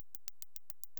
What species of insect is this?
Canariola emarginata